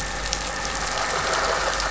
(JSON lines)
{"label": "anthrophony, boat engine", "recorder": "SoundTrap 500"}